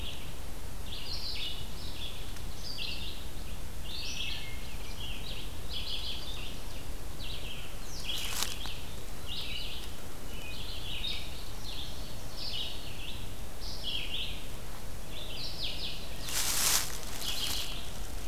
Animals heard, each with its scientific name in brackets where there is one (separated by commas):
Wood Thrush (Hylocichla mustelina), Red-eyed Vireo (Vireo olivaceus)